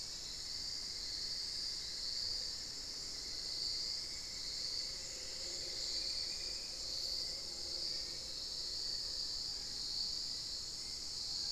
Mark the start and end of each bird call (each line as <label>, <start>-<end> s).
Cinnamon-throated Woodcreeper (Dendrexetastes rufigula), 0.0-7.6 s
unidentified bird, 4.7-6.5 s
Spot-winged Antshrike (Pygiptila stellaris), 5.9-11.5 s
unidentified bird, 7.3-11.5 s
Black-faced Antthrush (Formicarius analis), 7.8-9.9 s